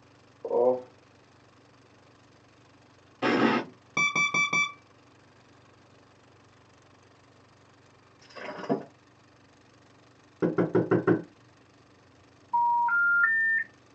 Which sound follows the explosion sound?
alarm